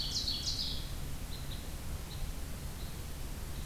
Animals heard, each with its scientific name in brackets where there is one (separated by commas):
Ovenbird (Seiurus aurocapilla), Red Crossbill (Loxia curvirostra)